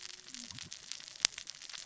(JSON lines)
{"label": "biophony, cascading saw", "recorder": "SoundTrap 600 or HydroMoth"}